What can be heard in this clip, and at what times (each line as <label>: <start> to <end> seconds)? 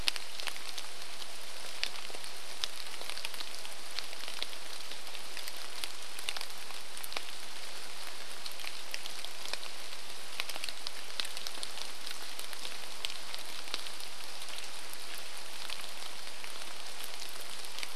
rain: 0 to 18 seconds